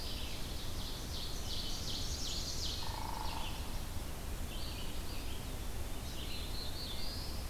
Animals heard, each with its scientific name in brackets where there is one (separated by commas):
Ovenbird (Seiurus aurocapilla), Chestnut-sided Warbler (Setophaga pensylvanica), Black-throated Blue Warbler (Setophaga caerulescens), Red-eyed Vireo (Vireo olivaceus), Hairy Woodpecker (Dryobates villosus)